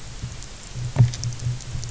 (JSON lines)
{"label": "anthrophony, boat engine", "recorder": "SoundTrap 300"}